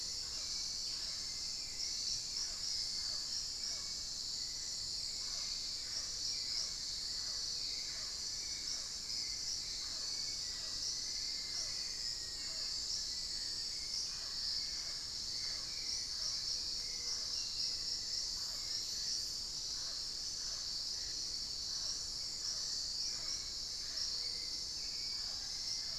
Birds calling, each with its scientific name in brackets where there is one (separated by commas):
unidentified bird, Mealy Parrot (Amazona farinosa), Black-faced Antthrush (Formicarius analis), Hauxwell's Thrush (Turdus hauxwelli)